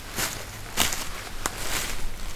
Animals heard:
forest ambience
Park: Katahdin Woods and Waters National Monument